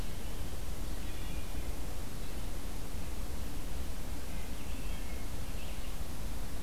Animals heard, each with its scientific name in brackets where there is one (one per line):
Wood Thrush (Hylocichla mustelina)